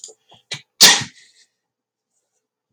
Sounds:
Sneeze